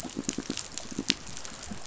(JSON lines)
{"label": "biophony, pulse", "recorder": "SoundTrap 500"}